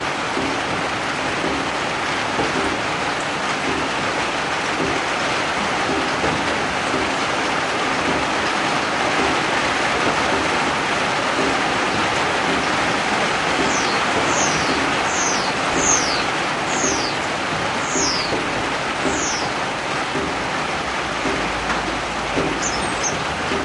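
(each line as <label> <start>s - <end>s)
Heavy rain falls on the ground while raindrops drip from the roof. 0.0s - 23.6s
A bird chirps rhythmically. 13.7s - 19.8s
A bird chirps quickly. 22.5s - 23.5s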